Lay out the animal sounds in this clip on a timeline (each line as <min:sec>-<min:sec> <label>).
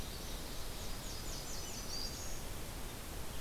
0:00.0-0:00.8 Ovenbird (Seiurus aurocapilla)
0:00.2-0:02.4 Nashville Warbler (Leiothlypis ruficapilla)
0:01.2-0:02.5 Black-throated Green Warbler (Setophaga virens)